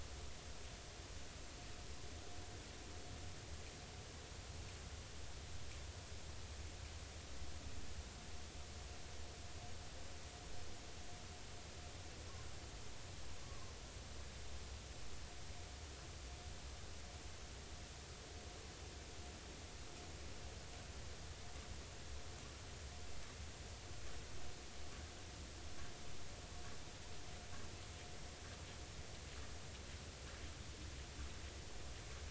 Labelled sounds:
13.4	13.7	humpback whale, 0.99 to 1.2 kHz

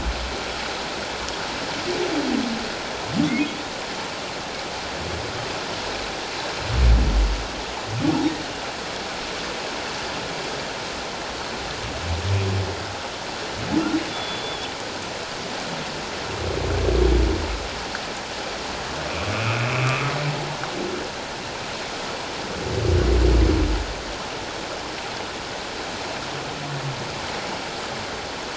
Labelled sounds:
3.3	3.6	humpback whale, 2.0 to 2.2 kHz
14.1	14.7	humpback whale, 3.2 to 3.6 kHz
19.3	20.1	humpback whale, 1.1 to 2.7 kHz

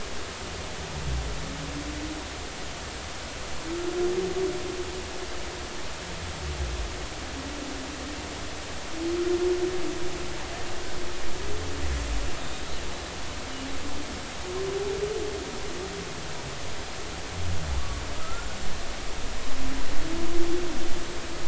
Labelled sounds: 12.4	12.6	killer whale, Bigg's (transient), 3.6 to 3.9 kHz
17.7	18.5	killer whale, Bigg's (transient), 0.83 to 1.5 kHz

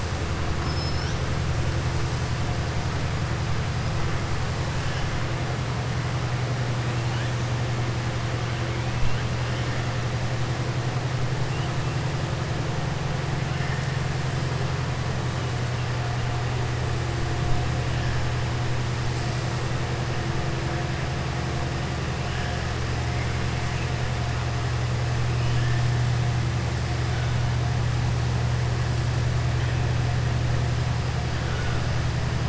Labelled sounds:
0.5	1.2	killer whale, southern resident, 2.9 to 6.2 kHz

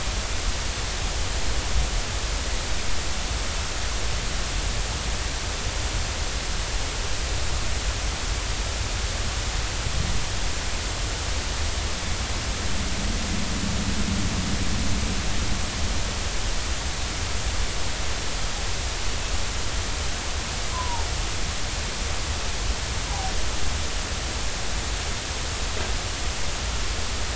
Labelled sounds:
20.7	21.1	humpback whale, 0.80 to 1.1 kHz
23.1	23.3	humpback whale, 0.80 to 1.0 kHz

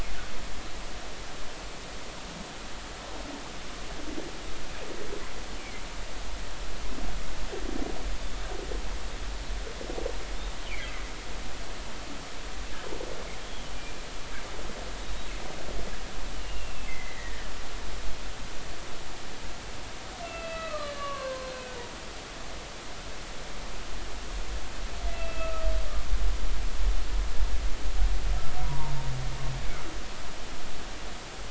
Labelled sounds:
5.6	5.8	humpback whale, 2.0 to 2.6 kHz
10.7	11.0	humpback whale, 1.9 to 2.5 kHz
16.3	17.5	humpback whale, 1.7 to 3.0 kHz
20.2	21.7	humpback whale, 0.99 to 4.2 kHz
25.1	25.7	humpback whale, 1.2 to 2.8 kHz
29.6	29.9	humpback whale, 0.86 to 1.1 kHz

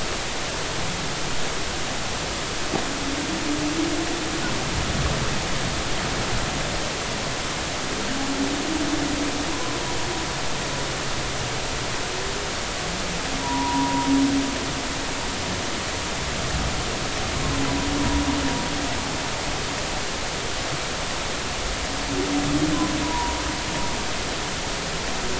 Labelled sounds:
9.5	9.8	humpback whale, 0.93 to 1.1 kHz
13.4	14.1	humpback whale, 0.80 to 1.0 kHz
23.0	23.4	humpback whale, 0.90 to 1.1 kHz

